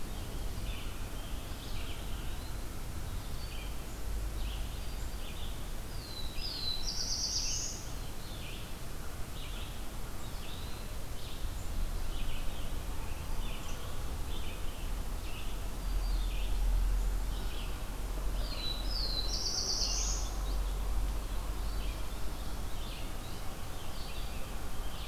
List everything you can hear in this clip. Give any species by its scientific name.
Vireo olivaceus, Contopus virens, Setophaga virens, Setophaga caerulescens